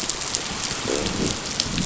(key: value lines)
label: biophony
recorder: SoundTrap 500